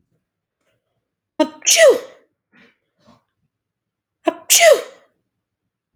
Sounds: Sneeze